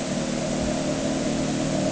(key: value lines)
label: anthrophony, boat engine
recorder: HydroMoth